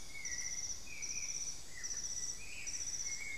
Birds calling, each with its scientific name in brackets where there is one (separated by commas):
Black-faced Antthrush (Formicarius analis), White-necked Thrush (Turdus albicollis)